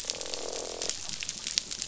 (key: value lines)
label: biophony, croak
recorder: SoundTrap 500